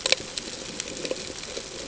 {"label": "ambient", "recorder": "HydroMoth"}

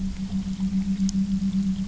{"label": "anthrophony, boat engine", "recorder": "SoundTrap 300"}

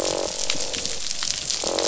{"label": "biophony, croak", "recorder": "SoundTrap 500"}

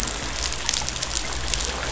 {"label": "anthrophony, boat engine", "recorder": "SoundTrap 500"}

